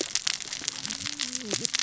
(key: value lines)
label: biophony, cascading saw
recorder: SoundTrap 600 or HydroMoth